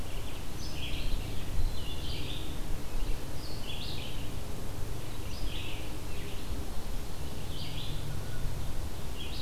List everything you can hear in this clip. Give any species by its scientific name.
Vireo olivaceus, Hylocichla mustelina, Seiurus aurocapilla